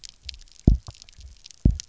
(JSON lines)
{"label": "biophony, double pulse", "recorder": "SoundTrap 300"}